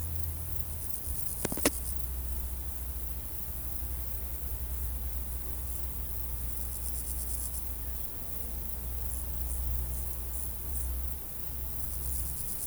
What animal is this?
Pseudochorthippus parallelus, an orthopteran